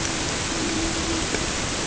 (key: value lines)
label: ambient
recorder: HydroMoth